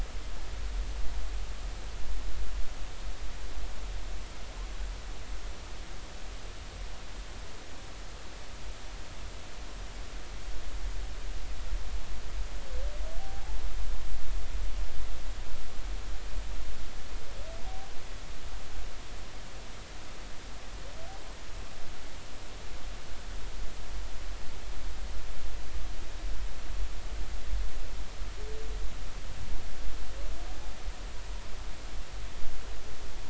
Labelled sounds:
13.2	13.6	humpback whale, 0.80 to 0.93 kHz

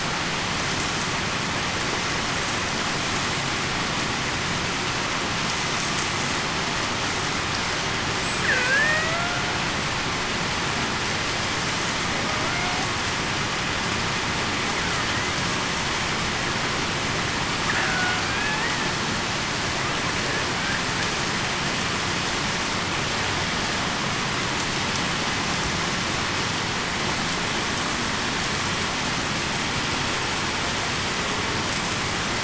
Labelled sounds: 8.4	9.2	killer whale, Bigg's (transient), 1.5 to 2.1 kHz
17.8	18.6	killer whale, Bigg's (transient), 1.4 to 2.6 kHz

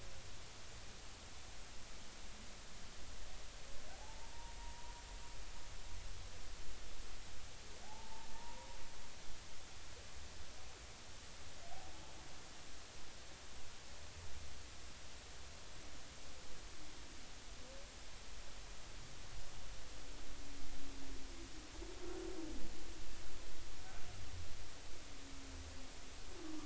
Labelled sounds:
3.9	4.9	humpback whale, 0.80 to 1.1 kHz
7.8	8.7	humpback whale, 0.80 to 1.1 kHz

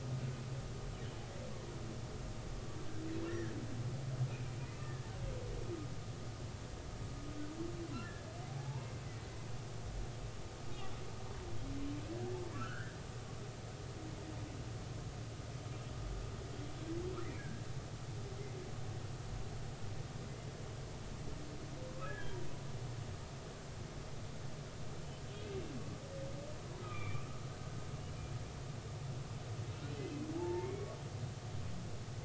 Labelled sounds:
3.3	3.5	humpback whale, 1.5 to 2.0 kHz
4.8	5.1	humpback whale, 1.7 to 1.9 kHz
8.5	8.9	humpback whale, 0.80 to 1.1 kHz
12.5	13.0	humpback whale, 1.2 to 3.2 kHz
17.4	17.7	humpback whale, 1.5 to 1.7 kHz
21.9	22.4	humpback whale, 0.99 to 1.8 kHz
25.3	25.6	humpback whale, 2.4 to 2.7 kHz
26.8	27.3	humpback whale, 1.1 to 3.6 kHz
30.0	30.9	humpback whale, 0.80 to 2.6 kHz

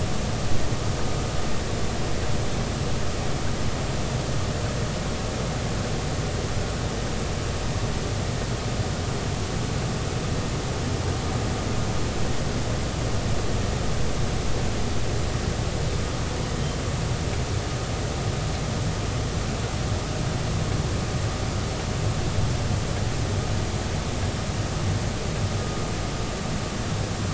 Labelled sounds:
16.4	16.8	humpback whale, 3.0 to 3.2 kHz

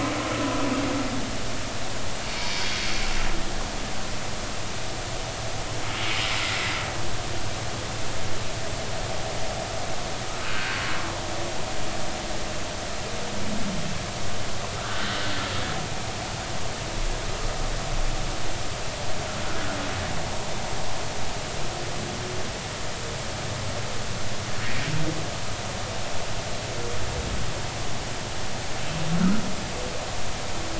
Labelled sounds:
2.4	2.8	humpback whale, 4.5 to 4.7 kHz
6.4	6.7	humpback whale, 1.9 to 2.1 kHz
10.5	10.8	humpback whale, 1.4 to 1.7 kHz
14.8	15.2	humpback whale, 1.3 to 1.7 kHz

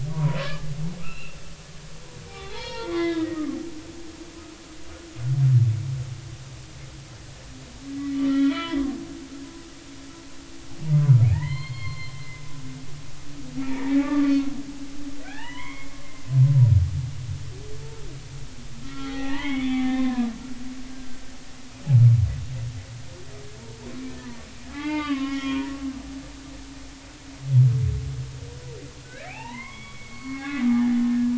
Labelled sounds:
0.1	1.4	humpback whale, 0.90 to 2.9 kHz
2.3	3.6	humpback whale, 0.80 to 5.2 kHz
8.1	8.9	humpback whale, 0.93 to 3.5 kHz
11.3	12.4	humpback whale, 0.80 to 4.4 kHz
13.6	14.5	humpback whale, 0.80 to 2.5 kHz
15.2	16.0	humpback whale, 0.80 to 3.4 kHz
18.9	21.3	humpback whale, 0.80 to 3.7 kHz
24.7	25.7	humpback whale, 0.80 to 4.0 kHz
29.0	31.3	humpback whale, 0.80 to 4.5 kHz

